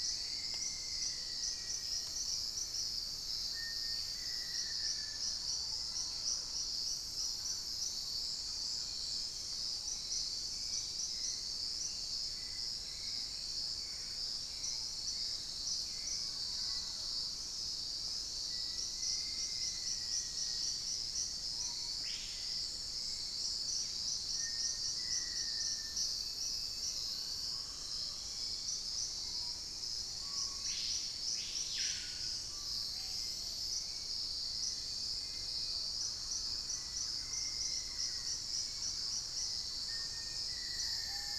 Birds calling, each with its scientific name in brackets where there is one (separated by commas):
Mealy Parrot (Amazona farinosa), Plain-throated Antwren (Isleria hauxwelli), Screaming Piha (Lipaugus vociferans), Hauxwell's Thrush (Turdus hauxwelli), Dusky-capped Greenlet (Pachysylvia hypoxantha), Long-billed Woodcreeper (Nasica longirostris), Black-faced Antthrush (Formicarius analis), Dusky-throated Antshrike (Thamnomanes ardesiacus), unidentified bird